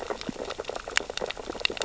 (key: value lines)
label: biophony, sea urchins (Echinidae)
recorder: SoundTrap 600 or HydroMoth